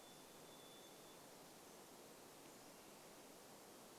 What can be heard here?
Varied Thrush song, Pacific-slope Flycatcher song